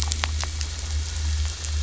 {"label": "anthrophony, boat engine", "recorder": "SoundTrap 500"}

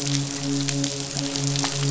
{"label": "biophony, midshipman", "recorder": "SoundTrap 500"}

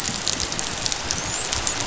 {"label": "biophony, dolphin", "recorder": "SoundTrap 500"}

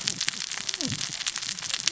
{"label": "biophony, cascading saw", "recorder": "SoundTrap 600 or HydroMoth"}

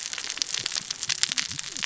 {"label": "biophony, cascading saw", "recorder": "SoundTrap 600 or HydroMoth"}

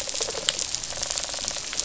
{"label": "biophony, rattle response", "recorder": "SoundTrap 500"}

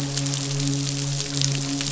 {"label": "biophony, midshipman", "recorder": "SoundTrap 500"}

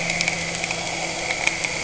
{"label": "anthrophony, boat engine", "recorder": "HydroMoth"}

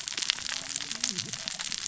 {"label": "biophony, cascading saw", "recorder": "SoundTrap 600 or HydroMoth"}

